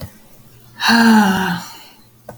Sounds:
Sigh